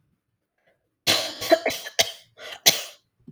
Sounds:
Cough